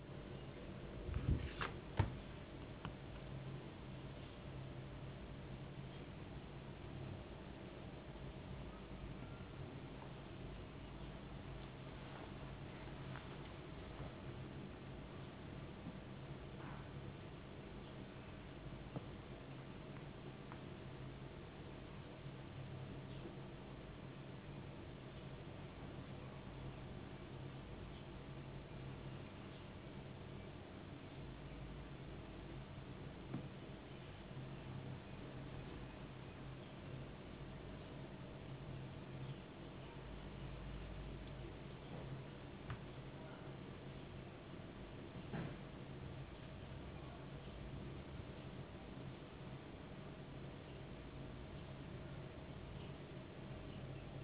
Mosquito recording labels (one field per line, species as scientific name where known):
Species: no mosquito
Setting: insect culture